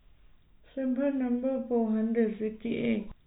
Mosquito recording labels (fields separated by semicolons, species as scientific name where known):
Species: no mosquito; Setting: cup